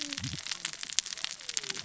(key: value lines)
label: biophony, cascading saw
recorder: SoundTrap 600 or HydroMoth